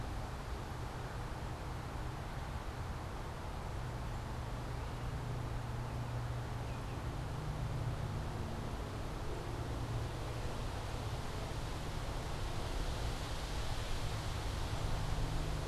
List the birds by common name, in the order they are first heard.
Baltimore Oriole